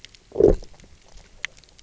{"label": "biophony, low growl", "recorder": "SoundTrap 300"}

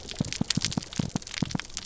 {"label": "biophony, pulse", "recorder": "SoundTrap 300"}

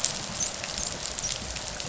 {"label": "biophony, dolphin", "recorder": "SoundTrap 500"}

